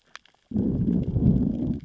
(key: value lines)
label: biophony, growl
recorder: SoundTrap 600 or HydroMoth